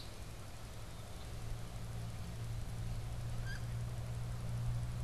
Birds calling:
Wood Duck (Aix sponsa)

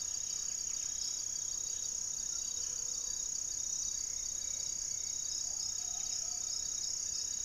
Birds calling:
Buff-breasted Wren (Cantorchilus leucotis), Little Tinamou (Crypturellus soui), Hauxwell's Thrush (Turdus hauxwelli), Gray-fronted Dove (Leptotila rufaxilla), Amazonian Trogon (Trogon ramonianus), Mealy Parrot (Amazona farinosa)

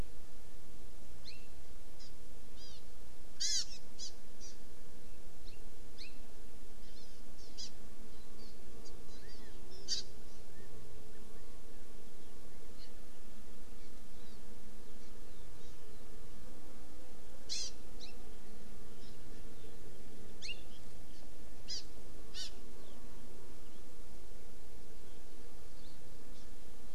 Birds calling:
Hawaii Amakihi (Chlorodrepanis virens), California Quail (Callipepla californica)

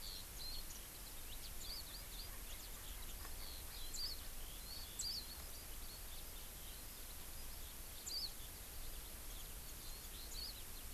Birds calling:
Warbling White-eye (Zosterops japonicus), Eurasian Skylark (Alauda arvensis)

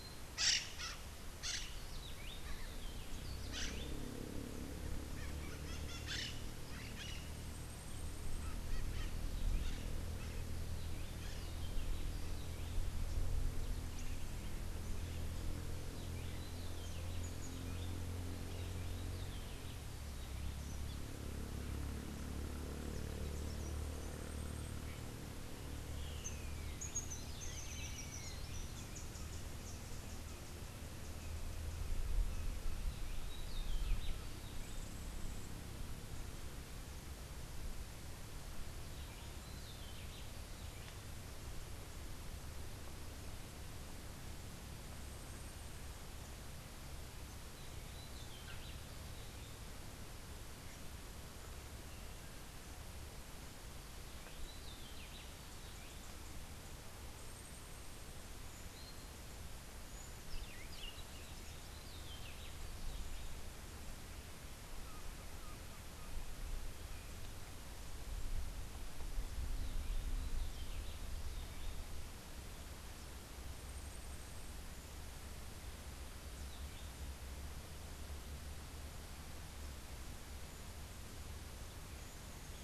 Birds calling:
Crimson-fronted Parakeet (Psittacara finschi), Rufous-breasted Wren (Pheugopedius rutilus)

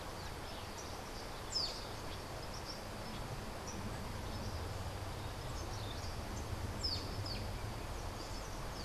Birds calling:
Social Flycatcher (Myiozetetes similis)

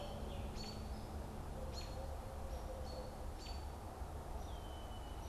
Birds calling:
Red-winged Blackbird (Agelaius phoeniceus), American Robin (Turdus migratorius), Hairy Woodpecker (Dryobates villosus)

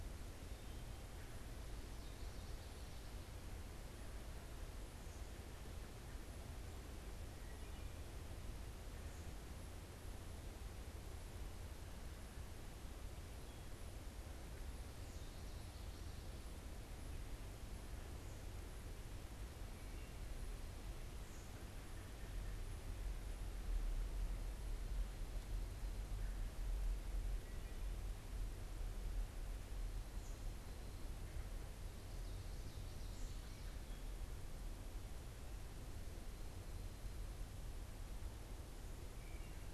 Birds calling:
Wood Thrush (Hylocichla mustelina), American Robin (Turdus migratorius)

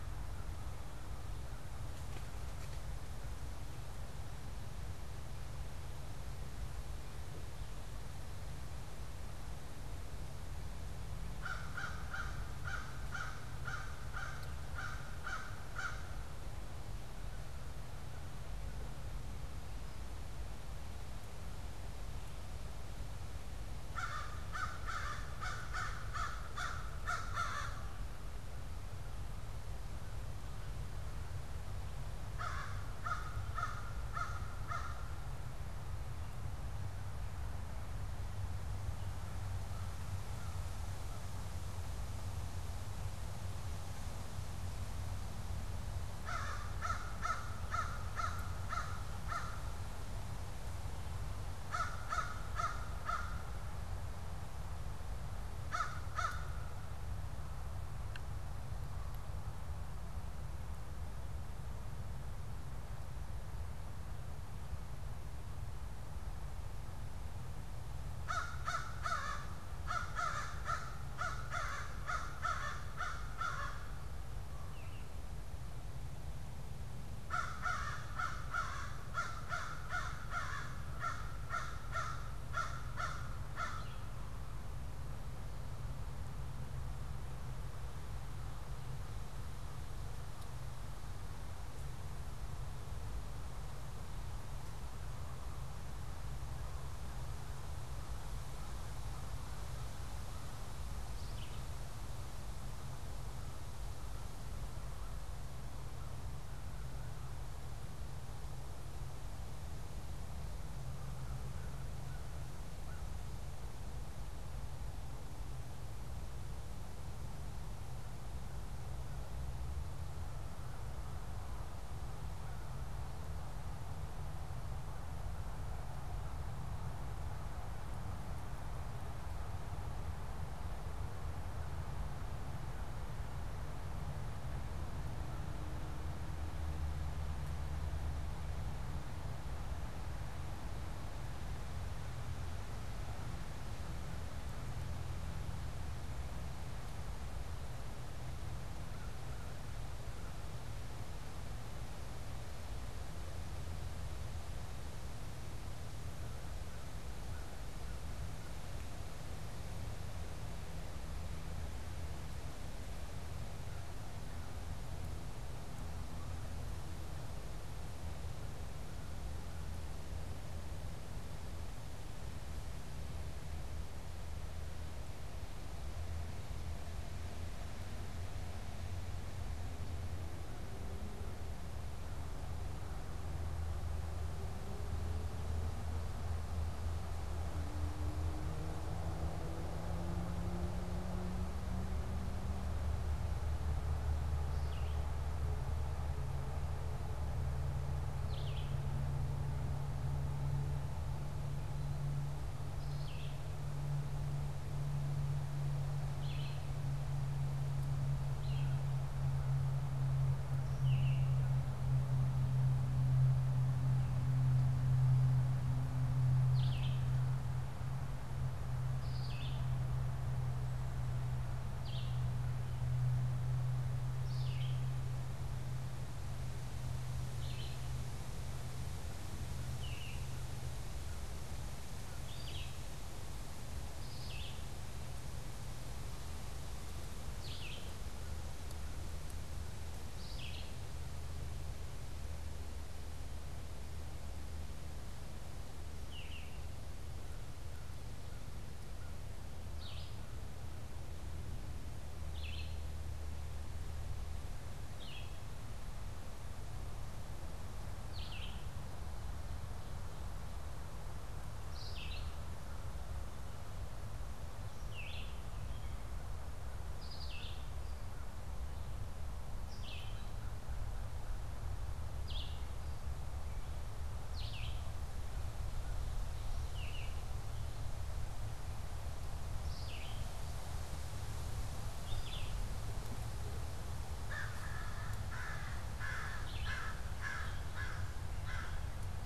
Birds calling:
American Crow (Corvus brachyrhynchos), Red-eyed Vireo (Vireo olivaceus)

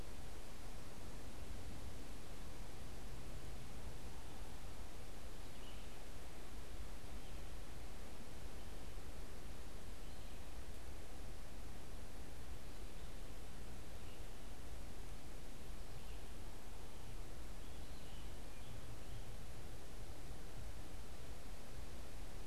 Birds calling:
Scarlet Tanager (Piranga olivacea)

